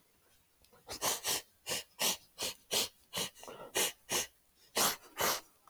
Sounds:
Sniff